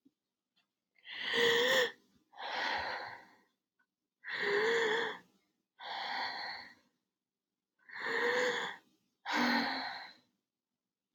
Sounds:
Sigh